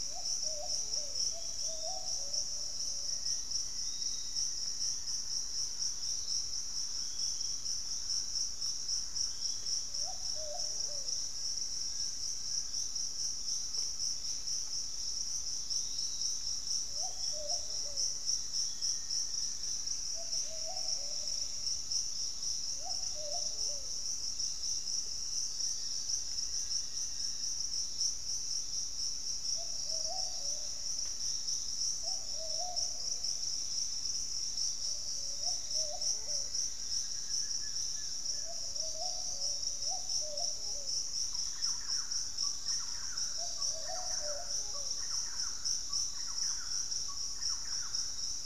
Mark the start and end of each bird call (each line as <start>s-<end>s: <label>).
0.0s-2.1s: Pygmy Antwren (Myrmotherula brachyura)
0.0s-19.1s: Piratic Flycatcher (Legatus leucophaius)
2.4s-10.7s: Thrush-like Wren (Campylorhynchus turdinus)
3.0s-5.8s: Black-faced Antthrush (Formicarius analis)
10.4s-13.4s: Fasciated Antshrike (Cymbilaimus lineatus)
12.4s-17.8s: Buff-throated Woodcreeper (Xiphorhynchus guttatus)
16.9s-20.0s: Black-faced Antthrush (Formicarius analis)
19.3s-22.1s: Pygmy Antwren (Myrmotherula brachyura)
25.1s-27.8s: Black-faced Antthrush (Formicarius analis)
25.4s-28.3s: Fasciated Antshrike (Cymbilaimus lineatus)
29.7s-31.6s: Black-faced Antthrush (Formicarius analis)
32.8s-35.5s: Pygmy Antwren (Myrmotherula brachyura)
35.0s-37.7s: Black-faced Antthrush (Formicarius analis)
36.0s-38.7s: Grayish Mourner (Rhytipterna simplex)
41.1s-48.4s: Thrush-like Wren (Campylorhynchus turdinus)
41.9s-44.4s: Fasciated Antshrike (Cymbilaimus lineatus)
46.3s-46.9s: Piratic Flycatcher (Legatus leucophaius)